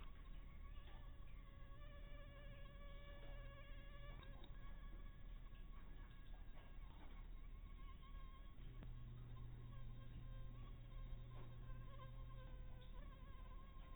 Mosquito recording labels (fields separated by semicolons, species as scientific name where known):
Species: Anopheles harrisoni; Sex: female; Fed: unfed; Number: one; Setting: cup